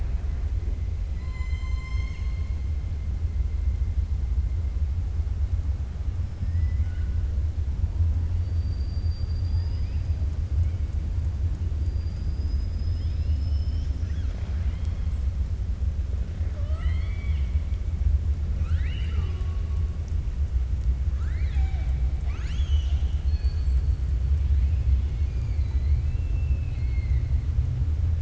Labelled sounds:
1.1	2.5	killer whale, 1.0 to 7.5 kHz
6.4	7.1	killer whale, 1.4 to 3.0 kHz
16.4	17.5	killer whale, 0.60 to 4.5 kHz
18.5	19.6	killer whale, 0.40 to 5.0 kHz
22.1	23.8	killer whale, 1.1 to 7.8 kHz

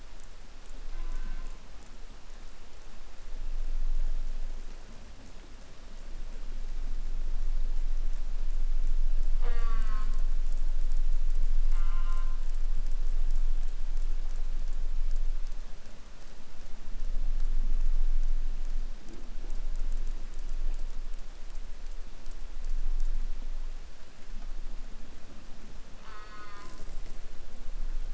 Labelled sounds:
0.8	1.6	killer whale, southern resident, J pod, call S04, 0.32 to 3.4 kHz
9.3	10.4	killer whale, southern resident, J pod, call S04, 0.29 to 5.4 kHz
11.7	12.5	killer whale, southern resident, J pod, call S04, 0.48 to 3.4 kHz
26.0	27.0	killer whale, southern resident, J pod, call S04, 0.57 to 4.8 kHz

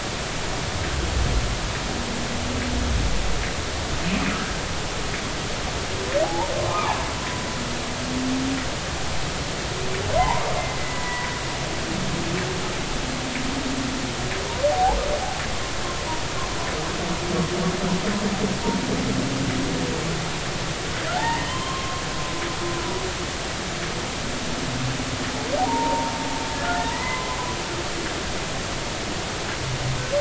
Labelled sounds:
6.2	7.0	humpback whale, 0.80 to 1.3 kHz
10.1	11.3	humpback whale, 0.80 to 2.0 kHz
14.7	15.0	humpback whale, 0.80 to 1.0 kHz
21.1	22.0	humpback whale, 0.80 to 1.9 kHz
25.6	26.1	humpback whale, 0.80 to 0.99 kHz
26.9	27.4	humpback whale, 0.90 to 2.1 kHz

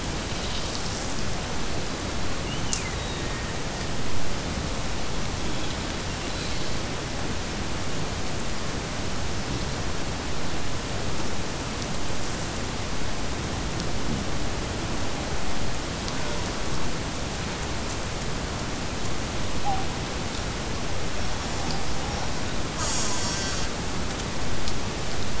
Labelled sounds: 2.4	3.6	killer whale, Bigg's (transient), Gulf of Alaska transient, 1.7 to 3.1 kHz

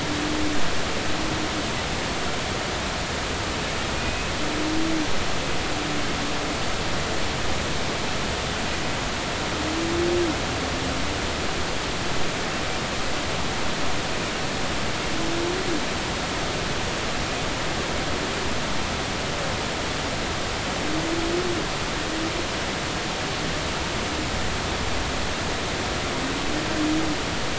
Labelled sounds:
4.0	4.3	humpback whale, 2.4 to 2.7 kHz

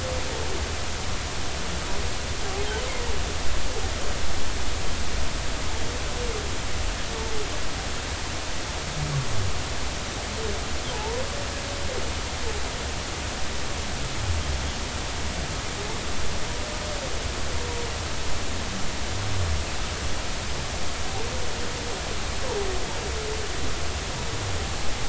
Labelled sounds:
10.9	11.2	humpback whale, 0.80 to 1.0 kHz

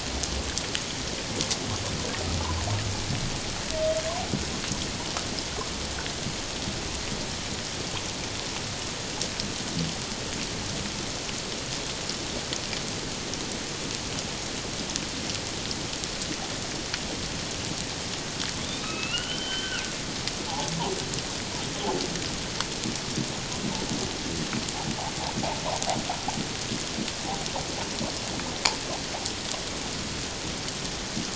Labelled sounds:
18.7	19.8	humpback whale, 1.3 to 3.9 kHz

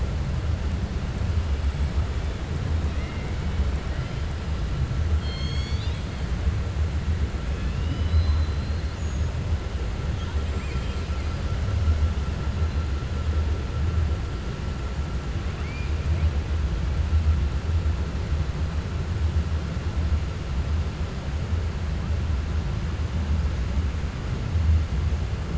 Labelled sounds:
7.5	8.9	killer whale, 1.7 to 5.0 kHz
10.4	11.4	killer whale, 2.0 to 5.2 kHz
15.5	15.9	killer whale, 1.2 to 2.8 kHz

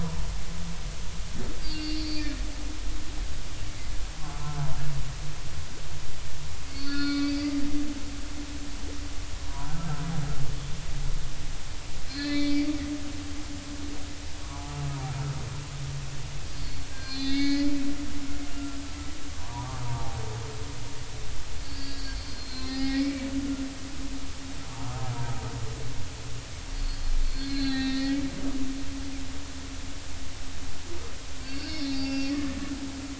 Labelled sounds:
1.6	3.3	humpback whale, 2.3 to 4.8 kHz
4.3	4.6	humpback whale, 1.3 to 1.4 kHz
6.7	7.4	humpback whale, 1.1 to 4.7 kHz
9.5	9.9	humpback whale, 0.80 to 1.4 kHz
12.1	12.7	humpback whale, 1.9 to 4.9 kHz
14.4	14.8	humpback whale, 0.80 to 1.3 kHz
16.6	17.7	humpback whale, 1.5 to 6.2 kHz
19.4	20.2	humpback whale, 0.80 to 1.1 kHz
21.6	23.2	humpback whale, 0.80 to 4.9 kHz
24.8	25.1	humpback whale, 1.2 to 1.4 kHz
26.7	28.2	humpback whale, 0.80 to 4.7 kHz
31.4	32.6	humpback whale, 0.80 to 5.5 kHz

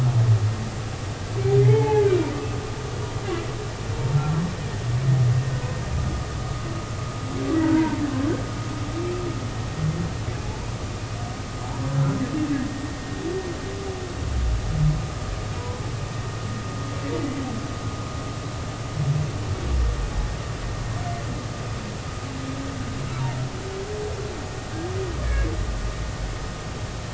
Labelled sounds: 1.6	2.3	humpback whale, 0.80 to 2.4 kHz
7.6	8.0	humpback whale, 0.86 to 1.7 kHz
15.6	15.8	humpback whale, 0.93 to 1.0 kHz
25.2	25.5	humpback whale, 1.6 to 2.3 kHz

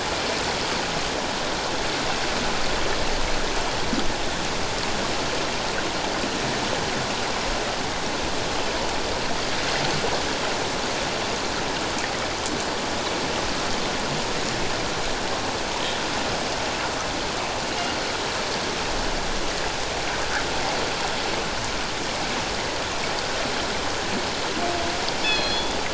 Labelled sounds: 25.2	25.8	killer whale, northern resident, G clan, call N24ii, 2.4 to 4.4 kHz

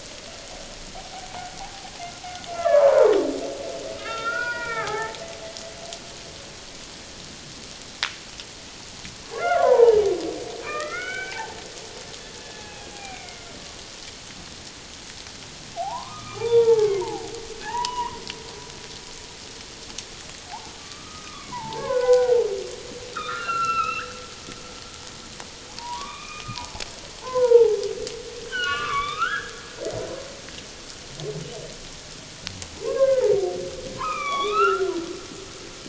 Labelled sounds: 0.9	1.3	humpback whale, 0.78 to 0.84 kHz
1.6	3.1	humpback whale, 0.78 to 1.8 kHz
4.0	5.2	humpback whale, 0.78 to 3.7 kHz
9.4	10.0	humpback whale, 0.78 to 1.6 kHz
10.6	11.6	humpback whale, 0.78 to 3.1 kHz
12.3	13.5	humpback whale, 0.78 to 2.6 kHz
15.7	17.2	humpback whale, 0.78 to 2.5 kHz
17.5	18.2	humpback whale, 0.78 to 3.0 kHz
20.8	24.1	humpback whale, 0.78 to 4.2 kHz
25.8	27.8	humpback whale, 0.78 to 2.6 kHz
28.5	29.5	humpback whale, 1.0 to 3.8 kHz
32.8	34.9	humpback whale, 0.78 to 5.8 kHz

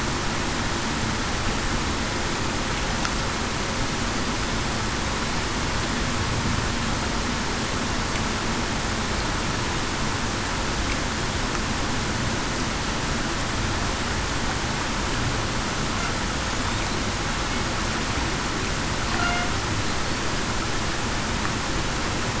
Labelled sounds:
19.1	19.5	killer whale, Bigg's (transient), 0.68 to 0.80 kHz

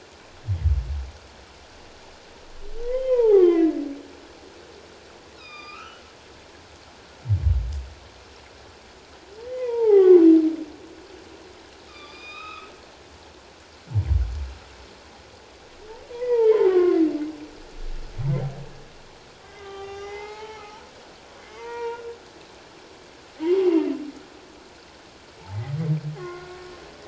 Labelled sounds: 2.8	3.7	humpback whale, 0.78 to 3.2 kHz
5.4	6.0	humpback whale, 1.1 to 5.1 kHz
9.4	10.2	humpback whale, 0.78 to 2.1 kHz
11.9	12.7	humpback whale, 1.1 to 5.2 kHz
16.1	17.0	humpback whale, 0.84 to 2.5 kHz
19.4	20.9	humpback whale, 0.78 to 6.9 kHz
21.4	22.0	humpback whale, 0.88 to 2.4 kHz
23.6	23.9	humpback whale, 2.7 to 2.8 kHz
26.2	26.5	humpback whale, 0.97 to 2.2 kHz

